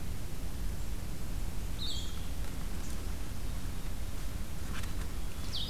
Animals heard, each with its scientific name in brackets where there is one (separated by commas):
Blue-headed Vireo (Vireo solitarius)